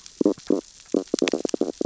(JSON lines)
{"label": "biophony, stridulation", "recorder": "SoundTrap 600 or HydroMoth"}